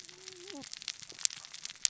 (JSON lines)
{"label": "biophony, cascading saw", "recorder": "SoundTrap 600 or HydroMoth"}